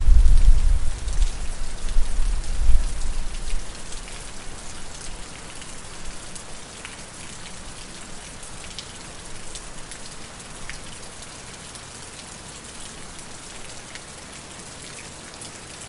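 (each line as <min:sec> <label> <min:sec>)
0:00.0 Rain is showering. 0:15.8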